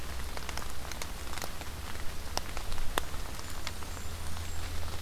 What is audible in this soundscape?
Blackburnian Warbler